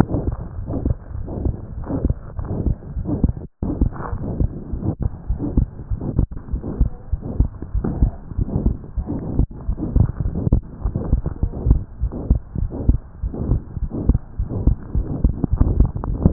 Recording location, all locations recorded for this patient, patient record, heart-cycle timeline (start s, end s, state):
aortic valve (AV)
aortic valve (AV)+mitral valve (MV)
#Age: Child
#Sex: Male
#Height: 79.0 cm
#Weight: 9.5 kg
#Pregnancy status: False
#Murmur: Present
#Murmur locations: aortic valve (AV)+mitral valve (MV)
#Most audible location: aortic valve (AV)
#Systolic murmur timing: Mid-systolic
#Systolic murmur shape: Diamond
#Systolic murmur grading: I/VI
#Systolic murmur pitch: Medium
#Systolic murmur quality: Harsh
#Diastolic murmur timing: nan
#Diastolic murmur shape: nan
#Diastolic murmur grading: nan
#Diastolic murmur pitch: nan
#Diastolic murmur quality: nan
#Outcome: Abnormal
#Campaign: 2015 screening campaign
0.00	4.09	unannotated
4.09	4.20	S1
4.20	4.38	systole
4.38	4.52	S2
4.52	4.72	diastole
4.72	4.80	S1
4.80	5.00	systole
5.00	5.10	S2
5.10	5.28	diastole
5.28	5.38	S1
5.38	5.54	systole
5.54	5.68	S2
5.68	5.90	diastole
5.90	6.00	S1
6.00	6.16	systole
6.16	6.28	S2
6.28	6.52	diastole
6.52	6.62	S1
6.62	6.76	systole
6.76	6.90	S2
6.90	7.12	diastole
7.12	7.22	S1
7.22	7.38	systole
7.38	7.52	S2
7.52	7.74	diastole
7.74	7.86	S1
7.86	8.00	systole
8.00	8.14	S2
8.14	8.38	diastole
8.38	8.48	S1
8.48	8.64	systole
8.64	8.78	S2
8.78	8.94	diastole
8.94	9.08	S1
9.08	9.35	systole
9.35	9.47	S2
9.47	9.66	diastole
9.66	9.76	S1
9.76	9.94	systole
9.94	10.08	S2
10.08	10.24	diastole
10.24	10.36	S1
10.36	10.51	systole
10.51	10.64	S2
10.64	10.81	diastole
10.81	10.94	S1
10.94	11.10	systole
11.10	11.24	S2
11.24	11.40	diastole
11.40	11.54	S1
11.54	11.68	systole
11.68	11.82	S2
11.82	11.99	diastole
11.99	12.12	S1
12.12	12.28	systole
12.28	12.42	S2
12.42	12.58	diastole
12.58	12.70	S1
12.70	12.85	systole
12.85	13.00	S2
13.00	13.21	diastole
13.21	13.34	S1
13.34	13.48	systole
13.48	13.62	S2
13.62	13.78	diastole
13.78	13.90	S1
13.90	14.06	systole
14.06	14.20	S2
14.20	14.35	diastole
14.35	14.48	S1
14.48	14.64	systole
14.64	14.78	S2
14.78	14.93	diastole
14.93	15.08	S1
15.08	15.22	systole
15.22	15.38	S2
15.38	16.32	unannotated